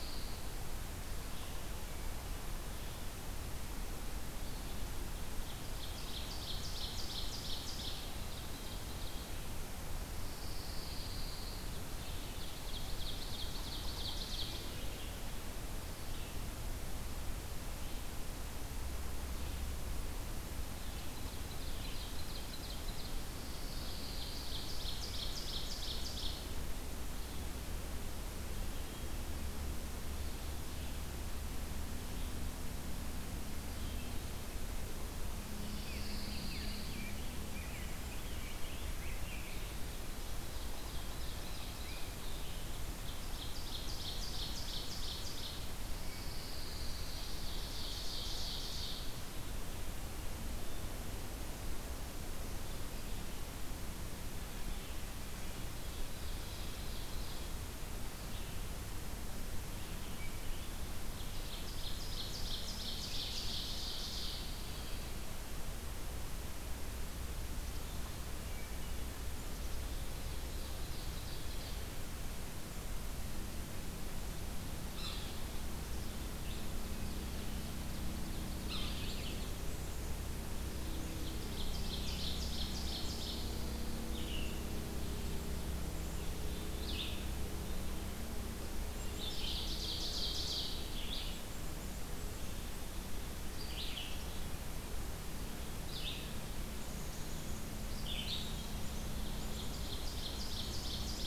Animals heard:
Rose-breasted Grosbeak (Pheucticus ludovicianus)
Red-eyed Vireo (Vireo olivaceus)
Black-capped Chickadee (Poecile atricapillus)
Yellow-bellied Sapsucker (Sphyrapicus varius)
Pine Warbler (Setophaga pinus)
Ovenbird (Seiurus aurocapilla)

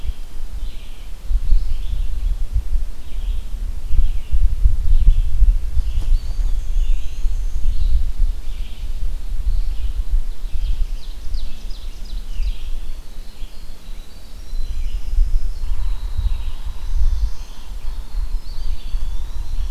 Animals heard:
Black-and-white Warbler (Mniotilta varia)
Eastern Wood-Pewee (Contopus virens)
Ovenbird (Seiurus aurocapilla)
Winter Wren (Troglodytes hiemalis)
Red-eyed Vireo (Vireo olivaceus)
Black-throated Blue Warbler (Setophaga caerulescens)

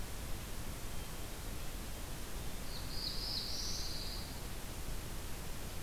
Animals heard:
Black-throated Blue Warbler (Setophaga caerulescens)
Pine Warbler (Setophaga pinus)

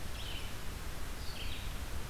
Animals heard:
Red-eyed Vireo (Vireo olivaceus)

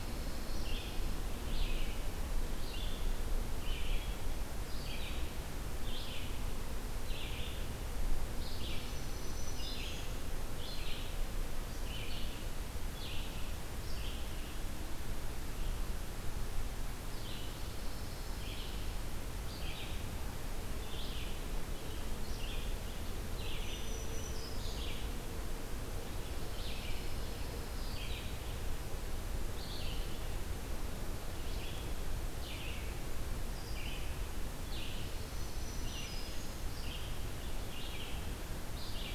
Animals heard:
Pine Warbler (Setophaga pinus)
Red-eyed Vireo (Vireo olivaceus)
Black-throated Green Warbler (Setophaga virens)

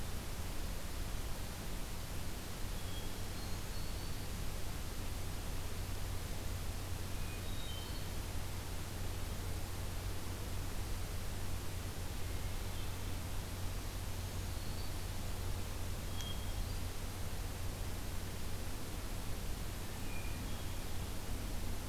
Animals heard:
Hermit Thrush (Catharus guttatus)
Black-throated Green Warbler (Setophaga virens)

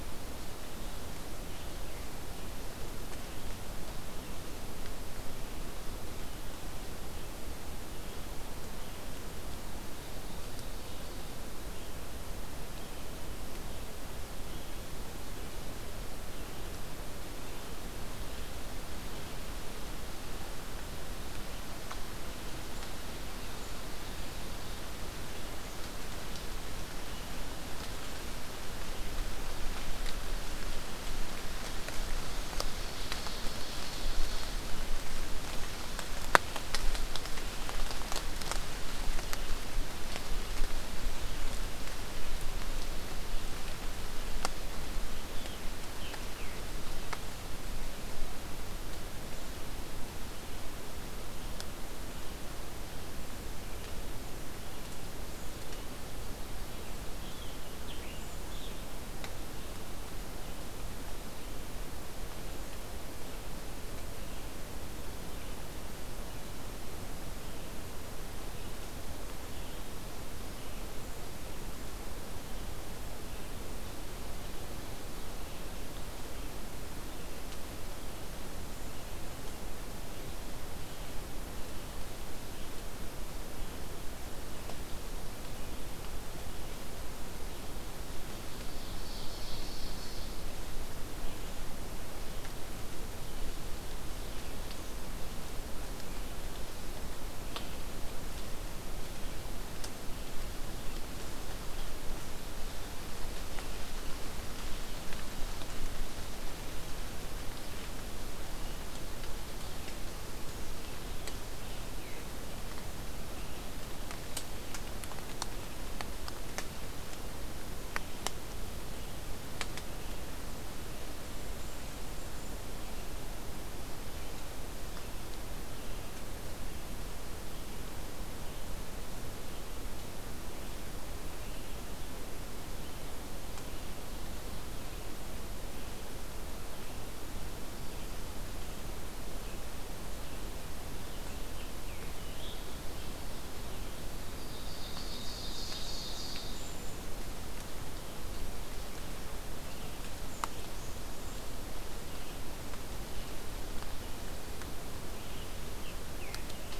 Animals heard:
Ovenbird (Seiurus aurocapilla)
Black-capped Chickadee (Poecile atricapillus)
Scarlet Tanager (Piranga olivacea)

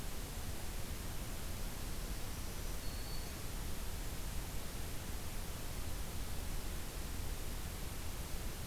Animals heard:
Black-throated Green Warbler (Setophaga virens)

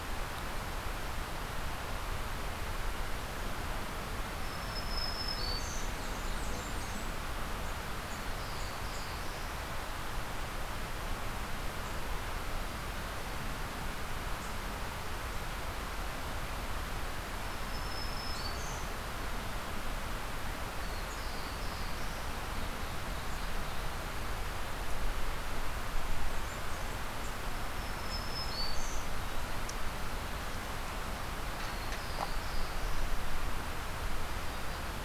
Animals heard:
Blackburnian Warbler (Setophaga fusca)
Black-throated Green Warbler (Setophaga virens)
Black-throated Blue Warbler (Setophaga caerulescens)
Ovenbird (Seiurus aurocapilla)

